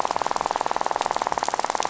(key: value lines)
label: biophony, rattle
recorder: SoundTrap 500